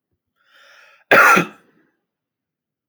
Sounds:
Cough